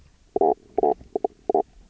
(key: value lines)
label: biophony, knock croak
recorder: SoundTrap 300